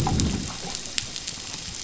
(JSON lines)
{"label": "biophony, growl", "recorder": "SoundTrap 500"}